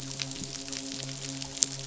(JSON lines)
{"label": "biophony, midshipman", "recorder": "SoundTrap 500"}